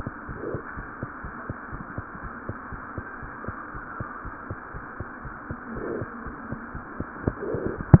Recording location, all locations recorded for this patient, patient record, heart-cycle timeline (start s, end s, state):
pulmonary valve (PV)
aortic valve (AV)+pulmonary valve (PV)+mitral valve (MV)
#Age: Infant
#Sex: Female
#Height: 70.0 cm
#Weight: 8.0 kg
#Pregnancy status: False
#Murmur: Unknown
#Murmur locations: nan
#Most audible location: nan
#Systolic murmur timing: nan
#Systolic murmur shape: nan
#Systolic murmur grading: nan
#Systolic murmur pitch: nan
#Systolic murmur quality: nan
#Diastolic murmur timing: nan
#Diastolic murmur shape: nan
#Diastolic murmur grading: nan
#Diastolic murmur pitch: nan
#Diastolic murmur quality: nan
#Outcome: Normal
#Campaign: 2015 screening campaign
0.00	0.27	unannotated
0.27	0.36	S1
0.36	0.50	systole
0.50	0.62	S2
0.62	0.76	diastole
0.76	0.88	S1
0.88	0.98	systole
0.98	1.10	S2
1.10	1.22	diastole
1.22	1.32	S1
1.32	1.46	systole
1.46	1.56	S2
1.56	1.72	diastole
1.72	1.86	S1
1.86	1.96	systole
1.96	2.06	S2
2.06	2.20	diastole
2.20	2.32	S1
2.32	2.46	systole
2.46	2.56	S2
2.56	2.72	diastole
2.72	2.82	S1
2.82	2.96	systole
2.96	3.06	S2
3.06	3.22	diastole
3.22	3.32	S1
3.32	3.46	systole
3.46	3.58	S2
3.58	3.74	diastole
3.74	3.82	S1
3.82	3.96	systole
3.96	4.08	S2
4.08	4.24	diastole
4.24	4.32	S1
4.32	4.46	systole
4.46	4.58	S2
4.58	4.74	diastole
4.74	4.84	S1
4.84	4.96	systole
4.96	5.08	S2
5.08	5.24	diastole
5.24	5.36	S1
5.36	5.46	systole
5.46	5.58	S2
5.58	5.70	diastole
5.70	5.84	S1
5.84	5.94	systole
5.94	6.10	S2
6.10	6.24	diastole
6.24	6.38	S1
6.38	6.50	systole
6.50	6.62	S2
6.62	6.74	diastole
6.74	6.86	S1
6.86	6.98	systole
6.98	7.08	S2
7.08	7.22	diastole
7.22	7.34	S1
7.34	8.00	unannotated